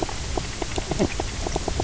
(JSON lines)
{"label": "biophony, knock croak", "recorder": "SoundTrap 300"}